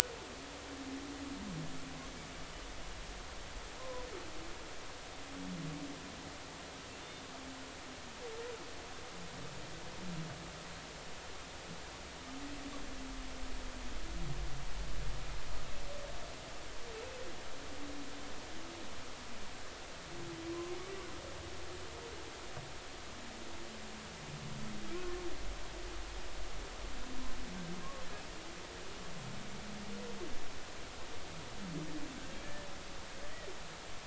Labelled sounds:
3.8	4.1	humpback whale, 0.93 to 1.1 kHz
25.0	25.2	humpback whale, 1.0 to 1.1 kHz

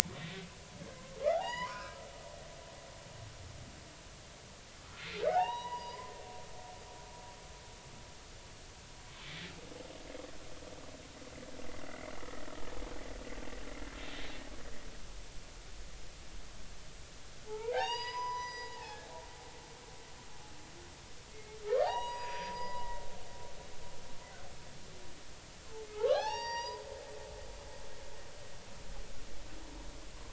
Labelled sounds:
0.1	0.5	humpback whale, 1.8 to 3.9 kHz
1.3	2.0	humpback whale, 0.80 to 7.0 kHz
5.3	6.1	humpback whale, 0.80 to 6.9 kHz
11.9	12.1	humpback whale, 1.9 to 2.3 kHz
17.5	19.1	humpback whale, 0.80 to 6.9 kHz
21.3	23.0	humpback whale, 0.80 to 7.8 kHz
26.1	26.8	humpback whale, 0.80 to 5.9 kHz

